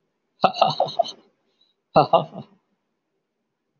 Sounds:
Laughter